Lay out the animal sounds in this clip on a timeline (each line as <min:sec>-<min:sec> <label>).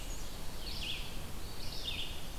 0:00.0-0:02.4 Red-eyed Vireo (Vireo olivaceus)
0:01.3-0:02.4 Eastern Wood-Pewee (Contopus virens)